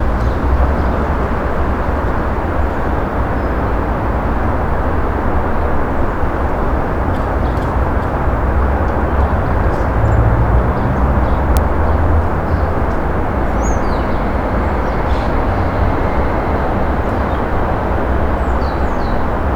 Is there thunder?
no